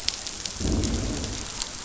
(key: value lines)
label: biophony, growl
recorder: SoundTrap 500